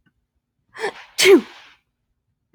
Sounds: Sneeze